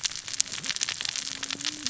{"label": "biophony, cascading saw", "recorder": "SoundTrap 600 or HydroMoth"}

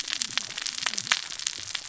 {"label": "biophony, cascading saw", "recorder": "SoundTrap 600 or HydroMoth"}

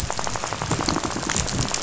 {"label": "biophony, rattle", "recorder": "SoundTrap 500"}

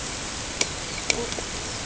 {"label": "ambient", "recorder": "HydroMoth"}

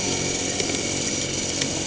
{"label": "anthrophony, boat engine", "recorder": "HydroMoth"}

